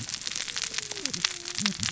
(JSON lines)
{"label": "biophony, cascading saw", "recorder": "SoundTrap 600 or HydroMoth"}